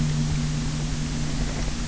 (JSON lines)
{"label": "anthrophony, boat engine", "recorder": "SoundTrap 300"}